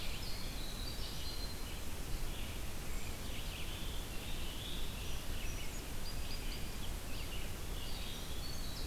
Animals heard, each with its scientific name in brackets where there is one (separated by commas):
Winter Wren (Troglodytes hiemalis), Red-eyed Vireo (Vireo olivaceus), Black-throated Blue Warbler (Setophaga caerulescens), Song Sparrow (Melospiza melodia)